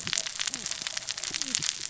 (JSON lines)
{"label": "biophony, cascading saw", "recorder": "SoundTrap 600 or HydroMoth"}